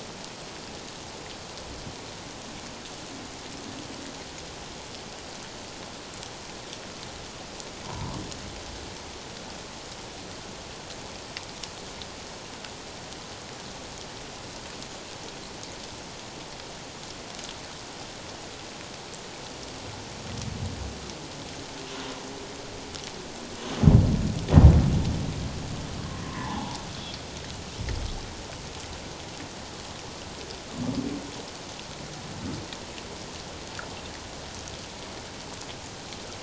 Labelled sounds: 7.8	8.2	humpback whale, 0.88 to 1.2 kHz
26.3	26.8	humpback whale, 0.78 to 1.2 kHz

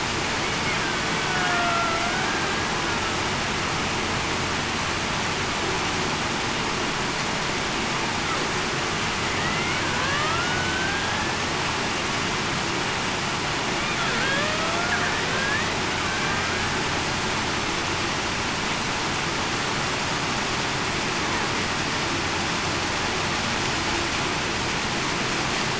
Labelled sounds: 1.2	2.0	killer whale, Bigg's (transient), 0.66 to 1.5 kHz
9.4	11.3	killer whale, Bigg's (transient), 0.96 to 2.3 kHz
14.2	14.5	killer whale, Bigg's (transient), 1.5 to 1.9 kHz
15.3	15.7	killer whale, Bigg's (transient), 1.5 to 2.0 kHz
16.0	16.4	killer whale, Bigg's (transient), 1.5 to 1.6 kHz

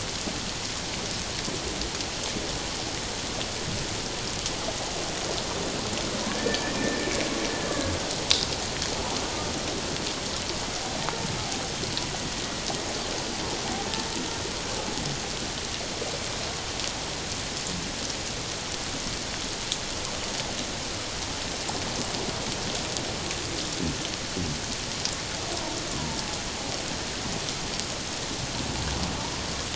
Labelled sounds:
6.3	6.8	killer whale, 1.6 to 2.5 kHz

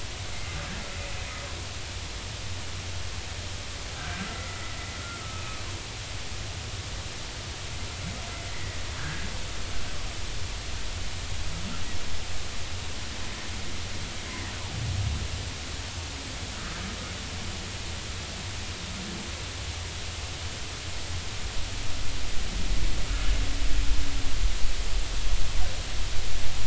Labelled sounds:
0.3	0.6	humpback whale, 2.0 to 2.2 kHz
4.0	4.7	humpback whale, 1.3 to 2.1 kHz
8.5	9.3	humpback whale, 1.4 to 2.2 kHz

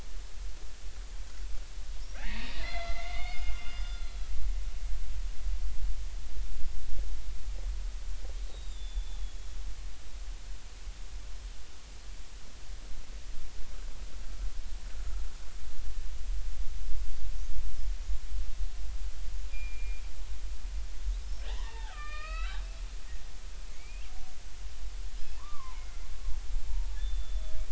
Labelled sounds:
2.2	4.1	killer whale, Bigg's (transient), 0.80 to 5.2 kHz
8.5	9.2	killer whale, Bigg's (transient), 3.4 to 3.9 kHz
19.5	20.0	killer whale, Bigg's (transient), 2.3 to 2.5 kHz
21.5	22.6	killer whale, Bigg's (transient), 0.80 to 5.3 kHz
23.7	24.0	killer whale, Bigg's (transient), 2.0 to 2.6 kHz
25.3	26.0	killer whale, Bigg's (transient), 0.83 to 2.3 kHz
27.0	27.6	killer whale, Bigg's (transient), 3.3 to 3.6 kHz

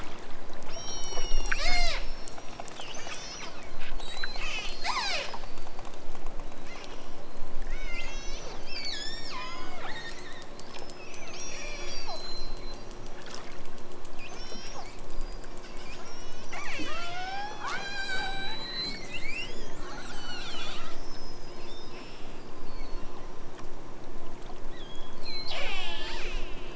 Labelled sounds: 0.7	2.1	killer whale, southern Alaska resident, 0.28 to 8.0 kHz
3.0	3.5	killer whale, southern Alaska resident, 3.9 to 7.0 kHz
3.9	5.4	killer whale, southern Alaska resident, 0.37 to 8.0 kHz
6.5	7.3	killer whale, southern Alaska resident, 1.4 to 6.7 kHz
7.7	10.5	killer whale, southern Alaska resident, 0.64 to 8.0 kHz
11.2	12.9	killer whale, southern Alaska resident, 1.3 to 8.0 kHz
14.2	14.9	killer whale, southern Alaska resident, 0.51 to 8.0 kHz
15.9	21.0	killer whale, southern Alaska resident, 0.32 to 8.0 kHz
21.6	23.2	killer whale, southern Alaska resident, 1.4 to 6.3 kHz
24.7	26.7	killer whale, southern Alaska resident, 0.23 to 8.0 kHz

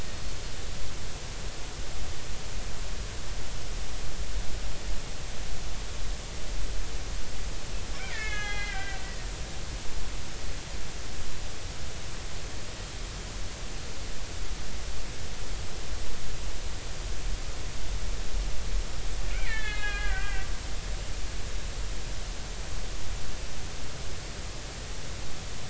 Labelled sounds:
7.9	9.0	killer whale, Bigg's (transient), 1.2 to 4.3 kHz
19.3	20.5	killer whale, Bigg's (transient), 1.2 to 3.9 kHz

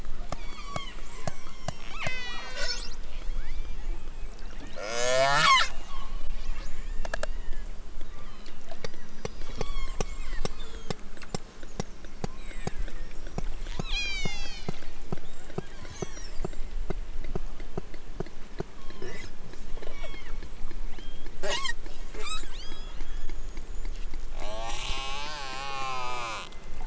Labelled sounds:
0.3	3.9	killer whale, southern Alaska resident, 0.50 to 8.0 kHz
4.7	6.2	killer whale, southern Alaska resident, 0.18 to 8.0 kHz
6.8	7.7	killer whale, southern Alaska resident, 1.3 to 5.6 kHz
8.0	11.0	killer whale, southern Alaska resident, 0.64 to 8.0 kHz
12.3	12.9	killer whale, southern Alaska resident, 1.2 to 4.5 kHz
13.7	14.9	killer whale, southern Alaska resident, 1.1 to 8.0 kHz
15.4	16.7	killer whale, southern Alaska resident, 1.1 to 8.0 kHz
18.6	19.3	killer whale, southern Alaska resident, 0.64 to 4.6 kHz
19.8	20.5	killer whale, southern Alaska resident, 1.1 to 3.8 kHz
20.8	21.8	killer whale, southern Alaska resident, 0.28 to 8.0 kHz
22.1	23.3	killer whale, southern Alaska resident, 0.64 to 8.0 kHz
24.3	26.5	killer whale, southern Alaska resident, 0.28 to 8.0 kHz

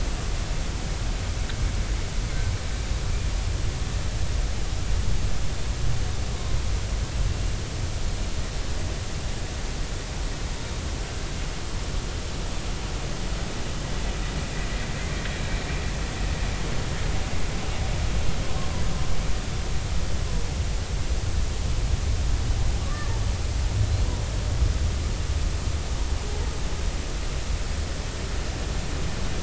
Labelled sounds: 22.8	23.1	humpback whale, 1.1 to 1.2 kHz

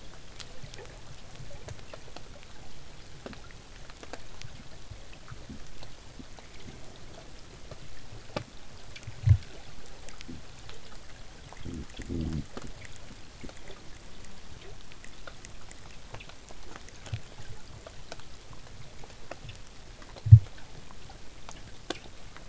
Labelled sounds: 15.5	20.5	vessel noise, 0 to 8.0 kHz

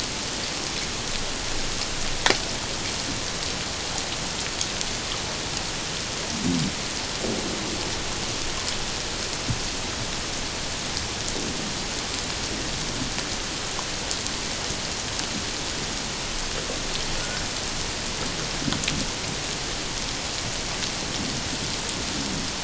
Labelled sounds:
17.2	17.4	humpback whale, 1.4 to 1.6 kHz

